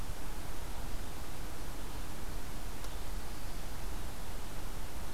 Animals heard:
forest ambience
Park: Marsh-Billings-Rockefeller National Historical Park